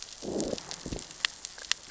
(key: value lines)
label: biophony, growl
recorder: SoundTrap 600 or HydroMoth